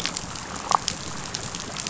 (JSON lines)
{"label": "biophony, damselfish", "recorder": "SoundTrap 500"}